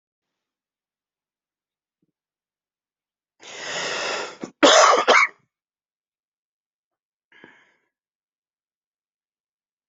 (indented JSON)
{
  "expert_labels": [
    {
      "quality": "good",
      "cough_type": "dry",
      "dyspnea": false,
      "wheezing": false,
      "stridor": false,
      "choking": false,
      "congestion": true,
      "nothing": false,
      "diagnosis": "upper respiratory tract infection",
      "severity": "mild"
    }
  ],
  "age": 48,
  "gender": "male",
  "respiratory_condition": false,
  "fever_muscle_pain": false,
  "status": "symptomatic"
}